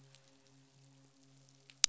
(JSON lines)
{"label": "biophony, midshipman", "recorder": "SoundTrap 500"}